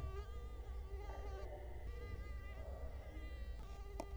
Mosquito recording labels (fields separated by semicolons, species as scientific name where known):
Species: Culex quinquefasciatus; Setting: cup